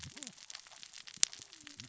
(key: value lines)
label: biophony, cascading saw
recorder: SoundTrap 600 or HydroMoth